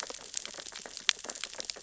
{"label": "biophony, sea urchins (Echinidae)", "recorder": "SoundTrap 600 or HydroMoth"}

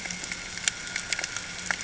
{"label": "ambient", "recorder": "HydroMoth"}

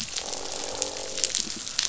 {"label": "biophony, croak", "recorder": "SoundTrap 500"}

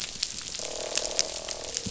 {"label": "biophony, croak", "recorder": "SoundTrap 500"}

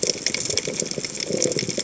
{"label": "biophony", "recorder": "HydroMoth"}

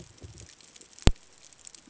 {"label": "ambient", "recorder": "HydroMoth"}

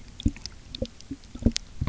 {"label": "geophony, waves", "recorder": "SoundTrap 300"}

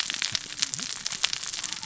{"label": "biophony, cascading saw", "recorder": "SoundTrap 600 or HydroMoth"}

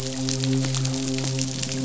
{"label": "biophony, midshipman", "recorder": "SoundTrap 500"}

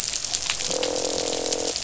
{"label": "biophony, croak", "recorder": "SoundTrap 500"}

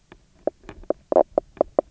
{"label": "biophony, knock croak", "recorder": "SoundTrap 300"}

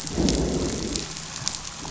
{"label": "biophony, growl", "recorder": "SoundTrap 500"}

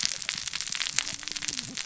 {"label": "biophony, cascading saw", "recorder": "SoundTrap 600 or HydroMoth"}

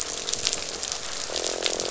{"label": "biophony, croak", "recorder": "SoundTrap 500"}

